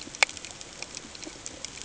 {"label": "ambient", "recorder": "HydroMoth"}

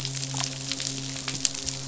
{"label": "biophony, midshipman", "recorder": "SoundTrap 500"}
{"label": "biophony", "recorder": "SoundTrap 500"}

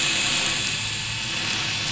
{"label": "anthrophony, boat engine", "recorder": "SoundTrap 500"}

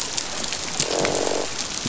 {"label": "biophony, croak", "recorder": "SoundTrap 500"}
{"label": "biophony", "recorder": "SoundTrap 500"}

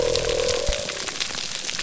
{"label": "biophony", "recorder": "SoundTrap 300"}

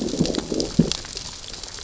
{"label": "biophony, growl", "recorder": "SoundTrap 600 or HydroMoth"}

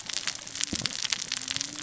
{"label": "biophony, cascading saw", "recorder": "SoundTrap 600 or HydroMoth"}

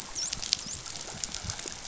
{"label": "biophony, dolphin", "recorder": "SoundTrap 500"}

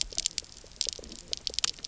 {"label": "biophony, knock croak", "recorder": "SoundTrap 300"}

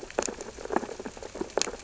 {"label": "biophony, sea urchins (Echinidae)", "recorder": "SoundTrap 600 or HydroMoth"}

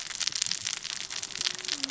{"label": "biophony, cascading saw", "recorder": "SoundTrap 600 or HydroMoth"}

